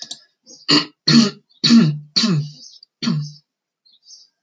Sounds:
Throat clearing